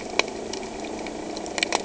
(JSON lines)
{"label": "anthrophony, boat engine", "recorder": "HydroMoth"}